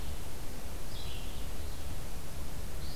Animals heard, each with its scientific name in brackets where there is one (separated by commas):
Red-eyed Vireo (Vireo olivaceus)